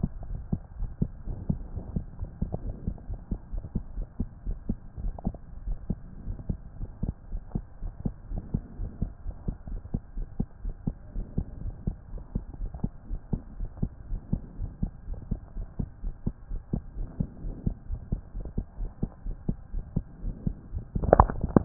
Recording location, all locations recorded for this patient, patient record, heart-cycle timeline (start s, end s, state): pulmonary valve (PV)
aortic valve (AV)+pulmonary valve (PV)+tricuspid valve (TV)+mitral valve (MV)
#Age: Child
#Sex: Female
#Height: 138.0 cm
#Weight: 37.1 kg
#Pregnancy status: False
#Murmur: Absent
#Murmur locations: nan
#Most audible location: nan
#Systolic murmur timing: nan
#Systolic murmur shape: nan
#Systolic murmur grading: nan
#Systolic murmur pitch: nan
#Systolic murmur quality: nan
#Diastolic murmur timing: nan
#Diastolic murmur shape: nan
#Diastolic murmur grading: nan
#Diastolic murmur pitch: nan
#Diastolic murmur quality: nan
#Outcome: Normal
#Campaign: 2015 screening campaign
0.00	0.10	unannotated
0.10	0.28	diastole
0.28	0.42	S1
0.42	0.50	systole
0.50	0.60	S2
0.60	0.78	diastole
0.78	0.92	S1
0.92	0.98	systole
0.98	1.10	S2
1.10	1.26	diastole
1.26	1.40	S1
1.40	1.48	systole
1.48	1.60	S2
1.60	1.74	diastole
1.74	1.86	S1
1.86	1.94	systole
1.94	2.04	S2
2.04	2.20	diastole
2.20	2.30	S1
2.30	2.38	systole
2.38	2.50	S2
2.50	2.64	diastole
2.64	2.76	S1
2.76	2.84	systole
2.84	2.94	S2
2.94	3.08	diastole
3.08	3.20	S1
3.20	3.28	systole
3.28	3.38	S2
3.38	3.52	diastole
3.52	3.64	S1
3.64	3.72	systole
3.72	3.82	S2
3.82	3.96	diastole
3.96	4.06	S1
4.06	4.16	systole
4.16	4.28	S2
4.28	4.46	diastole
4.46	4.60	S1
4.60	4.68	systole
4.68	4.78	S2
4.78	4.98	diastole
4.98	5.16	S1
5.16	5.24	systole
5.24	5.40	S2
5.40	5.62	diastole
5.62	5.78	S1
5.78	5.88	systole
5.88	6.02	S2
6.02	6.24	diastole
6.24	6.38	S1
6.38	6.48	systole
6.48	6.58	S2
6.58	6.80	diastole
6.80	6.90	S1
6.90	7.02	systole
7.02	7.14	S2
7.14	7.32	diastole
7.32	7.42	S1
7.42	7.54	systole
7.54	7.64	S2
7.64	7.82	diastole
7.82	7.94	S1
7.94	8.04	systole
8.04	8.14	S2
8.14	8.30	diastole
8.30	8.42	S1
8.42	8.52	systole
8.52	8.62	S2
8.62	8.78	diastole
8.78	8.90	S1
8.90	9.00	systole
9.00	9.12	S2
9.12	9.26	diastole
9.26	9.36	S1
9.36	9.46	systole
9.46	9.56	S2
9.56	9.70	diastole
9.70	9.82	S1
9.82	9.90	systole
9.90	10.02	S2
10.02	10.16	diastole
10.16	10.28	S1
10.28	10.36	systole
10.36	10.48	S2
10.48	10.64	diastole
10.64	10.76	S1
10.76	10.86	systole
10.86	10.96	S2
10.96	11.14	diastole
11.14	11.26	S1
11.26	11.36	systole
11.36	11.46	S2
11.46	11.62	diastole
11.62	11.76	S1
11.76	11.86	systole
11.86	11.96	S2
11.96	12.12	diastole
12.12	12.24	S1
12.24	12.34	systole
12.34	12.44	S2
12.44	12.60	diastole
12.60	12.72	S1
12.72	12.82	systole
12.82	12.94	S2
12.94	13.10	diastole
13.10	13.20	S1
13.20	13.28	systole
13.28	13.40	S2
13.40	13.58	diastole
13.58	13.70	S1
13.70	13.78	systole
13.78	13.90	S2
13.90	14.08	diastole
14.08	14.22	S1
14.22	14.28	systole
14.28	14.42	S2
14.42	14.58	diastole
14.58	14.70	S1
14.70	14.78	systole
14.78	14.90	S2
14.90	15.08	diastole
15.08	15.20	S1
15.20	15.30	systole
15.30	15.40	S2
15.40	15.58	diastole
15.58	15.68	S1
15.68	15.78	systole
15.78	15.90	S2
15.90	16.04	diastole
16.04	16.14	S1
16.14	16.22	systole
16.22	16.34	S2
16.34	16.50	diastole
16.50	16.62	S1
16.62	16.72	systole
16.72	16.84	S2
16.84	16.98	diastole
16.98	17.10	S1
17.10	17.18	systole
17.18	17.30	S2
17.30	17.44	diastole
17.44	17.56	S1
17.56	17.62	systole
17.62	17.74	S2
17.74	17.90	diastole
17.90	18.02	S1
18.02	18.08	systole
18.08	18.20	S2
18.20	18.36	diastole
18.36	18.52	S1
18.52	18.58	systole
18.58	18.66	S2
18.66	18.80	diastole
18.80	18.92	S1
18.92	19.02	systole
19.02	19.10	S2
19.10	19.26	diastole
19.26	19.38	S1
19.38	19.46	systole
19.46	19.58	S2
19.58	19.74	diastole
19.74	19.84	S1
19.84	19.92	systole
19.92	20.06	S2
20.06	20.24	diastole
20.24	20.38	S1
20.38	20.44	systole
20.44	20.58	S2
20.58	20.74	diastole
20.74	21.65	unannotated